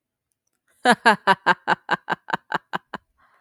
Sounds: Laughter